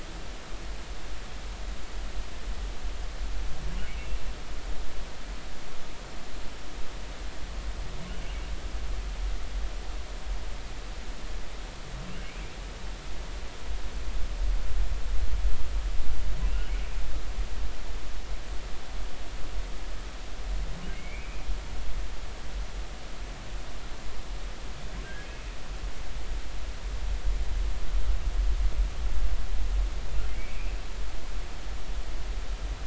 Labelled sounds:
16.5	16.7	humpback whale, 2.6 to 3.1 kHz
20.9	21.4	humpback whale, 2.0 to 2.6 kHz
25.0	25.3	humpback whale, 1.5 to 1.7 kHz
30.3	30.7	humpback whale, 2.2 to 2.8 kHz

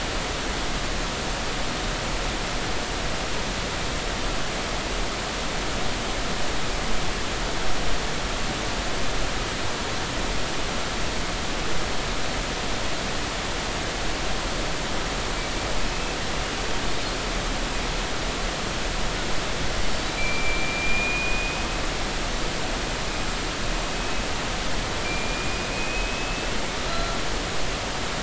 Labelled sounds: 20.0	21.7	killer whale, Bigg's (transient), 2.2 to 4.2 kHz
24.0	24.2	killer whale, Bigg's (transient), 2.5 to 2.6 kHz
25.0	26.6	killer whale, Bigg's (transient), 2.3 to 2.8 kHz
26.9	27.2	killer whale, Bigg's (transient), 1.3 to 4.1 kHz

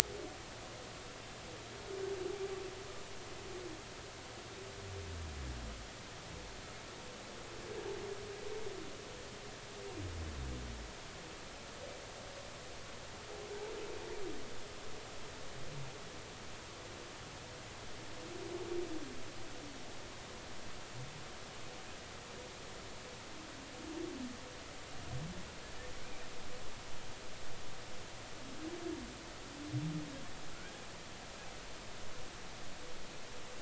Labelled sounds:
25.9	26.2	humpback whale, 2.2 to 2.5 kHz
30.5	30.8	humpback whale, 1.3 to 1.7 kHz

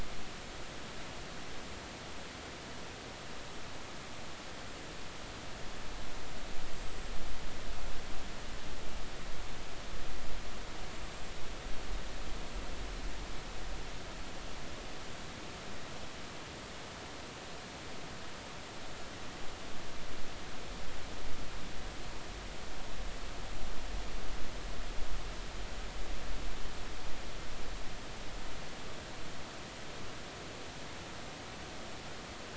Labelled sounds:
6.8	7.1	small unidentified odontocete, 7.5 to 7.8 kHz

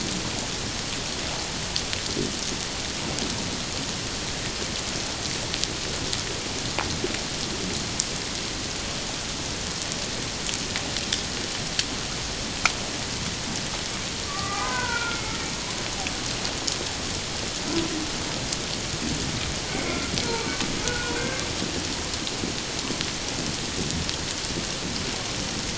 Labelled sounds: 14.2	15.4	humpback whale, 0.88 to 2.3 kHz
19.7	21.4	humpback whale, 1.3 to 2.3 kHz

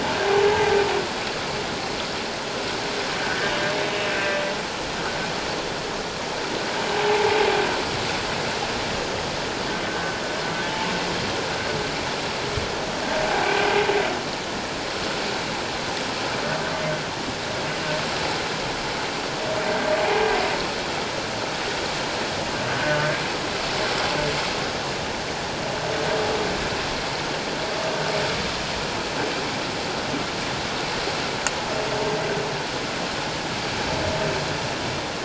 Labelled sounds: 4.1	4.4	humpback whale, 1.5 to 1.6 kHz
7.0	7.4	humpback whale, 0.78 to 0.97 kHz
9.9	10.1	humpback whale, 1.5 to 1.6 kHz
22.7	23.2	humpback whale, 1.4 to 1.7 kHz

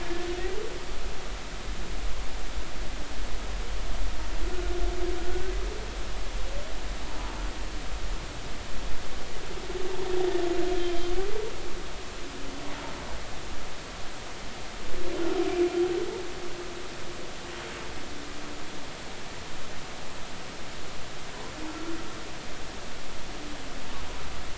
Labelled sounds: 21.7	22.0	humpback whale, 1.3 to 1.4 kHz

